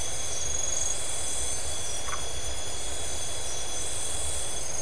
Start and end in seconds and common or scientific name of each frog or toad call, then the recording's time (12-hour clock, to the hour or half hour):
2.0	2.2	Phyllomedusa distincta
~midnight